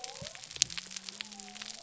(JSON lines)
{"label": "biophony", "recorder": "SoundTrap 300"}